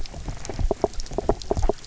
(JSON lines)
{"label": "biophony, knock", "recorder": "SoundTrap 300"}